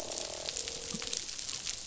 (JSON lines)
{"label": "biophony, croak", "recorder": "SoundTrap 500"}